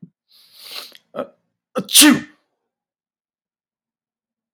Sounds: Sneeze